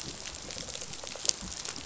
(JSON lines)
{"label": "biophony, rattle response", "recorder": "SoundTrap 500"}